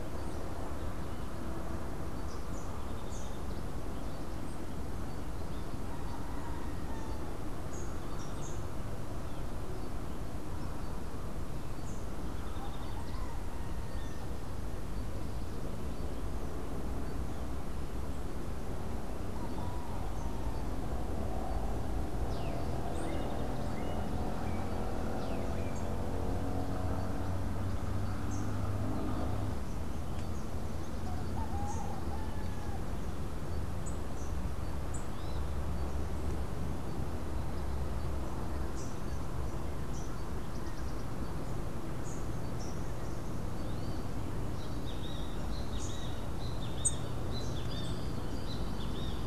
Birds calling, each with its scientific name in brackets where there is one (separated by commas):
Rufous-capped Warbler (Basileuterus rufifrons), Melodious Blackbird (Dives dives), Great Kiskadee (Pitangus sulphuratus)